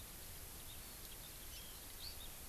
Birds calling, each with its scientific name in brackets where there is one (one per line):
Hawaii Amakihi (Chlorodrepanis virens)